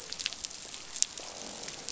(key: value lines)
label: biophony, croak
recorder: SoundTrap 500